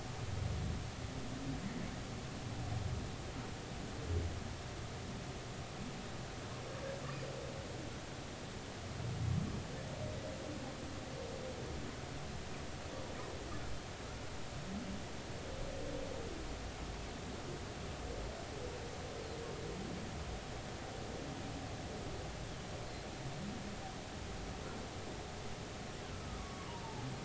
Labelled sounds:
26.4	27.1	humpback whale, 0.80 to 1.2 kHz

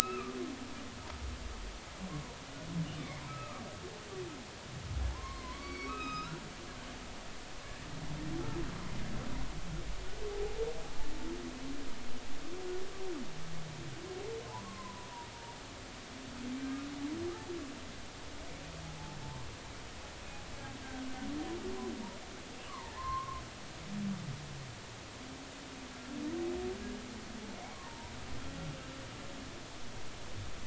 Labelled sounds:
1.0	1.4	humpback whale, 1.1 to 2.7 kHz
3.3	3.6	humpback whale, 1.1 to 1.3 kHz
5.1	6.4	humpback whale, 0.83 to 6.4 kHz
7.6	7.9	humpback whale, 1.6 to 1.9 kHz
10.3	10.6	humpback whale, 0.80 to 0.90 kHz
14.6	15.1	humpback whale, 0.93 to 1.2 kHz
22.7	23.4	humpback whale, 0.83 to 1.3 kHz
27.7	28.1	humpback whale, 0.86 to 1.2 kHz

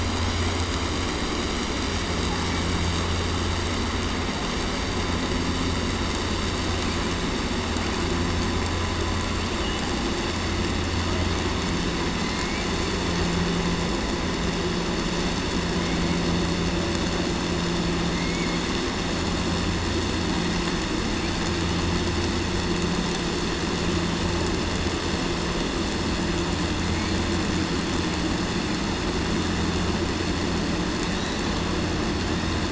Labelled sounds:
18.1	18.5	killer whale, southern resident, 2.0 to 2.3 kHz

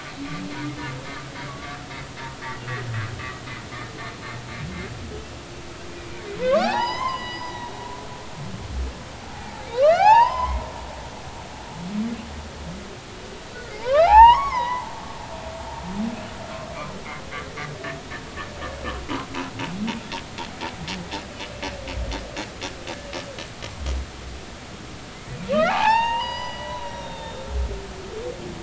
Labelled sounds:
1.5	1.8	humpback whale, 1.1 to 1.2 kHz
6.1	7.7	humpback whale, 0.80 to 6.4 kHz
9.7	10.6	humpback whale, 0.80 to 5.7 kHz
13.7	14.9	humpback whale, 0.80 to 5.6 kHz
25.7	27.4	humpback whale, 0.80 to 5.8 kHz

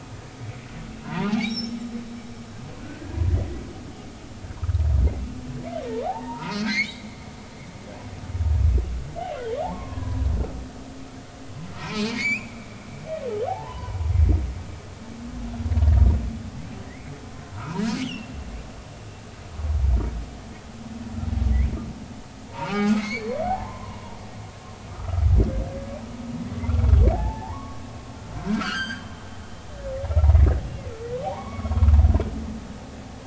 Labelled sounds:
1.0	1.8	humpback whale, 0.80 to 6.0 kHz
2.8	3.1	humpback whale, 1.3 to 1.7 kHz
6.0	7.1	humpback whale, 0.80 to 4.7 kHz
9.6	10.6	humpback whale, 0.80 to 1.8 kHz
11.8	12.6	humpback whale, 0.83 to 7.1 kHz
13.5	14.0	humpback whale, 0.80 to 1.1 kHz
16.9	18.4	humpback whale, 0.86 to 3.5 kHz
22.5	24.2	humpback whale, 0.80 to 4.7 kHz
24.9	25.3	humpback whale, 1.1 to 1.4 kHz
27.1	29.1	humpback whale, 0.80 to 7.9 kHz
31.2	31.7	humpback whale, 0.80 to 2.3 kHz

